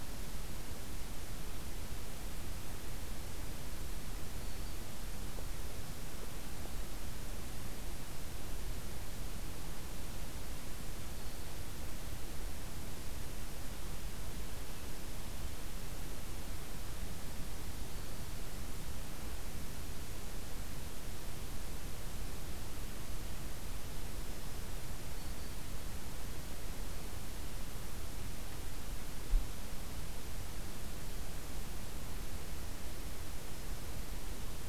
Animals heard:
forest ambience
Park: Acadia National Park